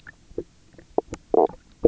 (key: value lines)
label: biophony, knock croak
recorder: SoundTrap 300